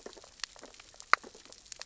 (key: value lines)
label: biophony, sea urchins (Echinidae)
recorder: SoundTrap 600 or HydroMoth